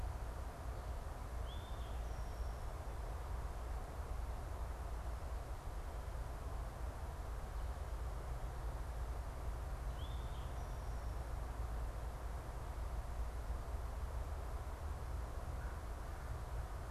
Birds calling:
Eastern Towhee (Pipilo erythrophthalmus)

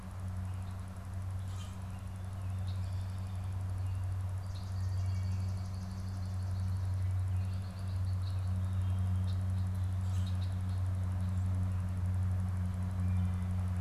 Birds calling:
Swamp Sparrow (Melospiza georgiana)
Common Grackle (Quiscalus quiscula)
Red-winged Blackbird (Agelaius phoeniceus)

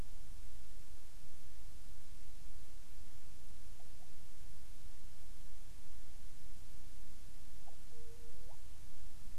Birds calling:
Hawaiian Petrel (Pterodroma sandwichensis)

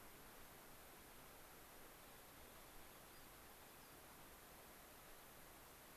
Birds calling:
unidentified bird

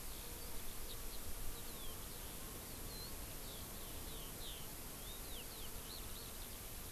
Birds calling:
Eurasian Skylark (Alauda arvensis)

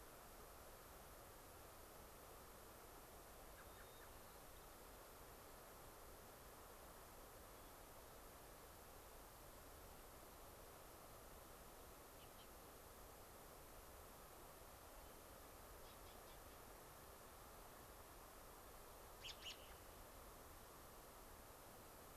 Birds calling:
American Robin (Turdus migratorius)
Hermit Thrush (Catharus guttatus)
White-crowned Sparrow (Zonotrichia leucophrys)

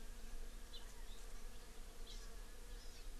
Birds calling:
Hawaii Amakihi (Chlorodrepanis virens)

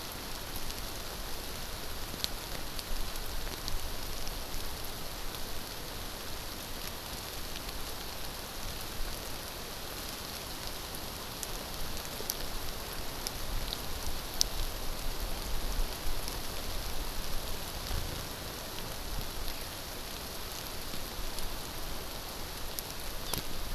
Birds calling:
Eurasian Skylark (Alauda arvensis)

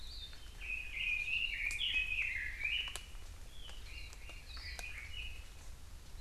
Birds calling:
Warbling White-eye (Zosterops japonicus)
Red-billed Leiothrix (Leiothrix lutea)

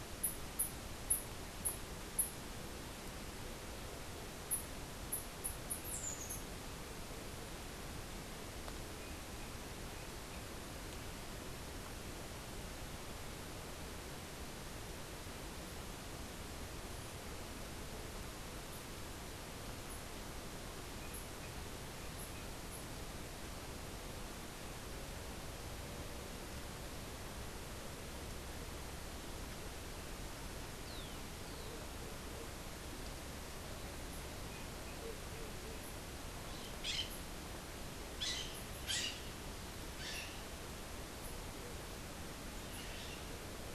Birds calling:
Bronze-winged Parrot (Pionus chalcopterus)

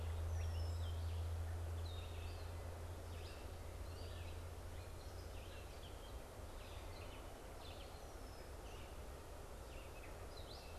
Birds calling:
Red-eyed Vireo (Vireo olivaceus)
Red-winged Blackbird (Agelaius phoeniceus)
Gray Catbird (Dumetella carolinensis)

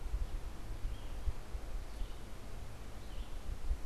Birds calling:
Red-eyed Vireo (Vireo olivaceus)

